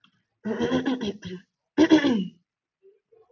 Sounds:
Throat clearing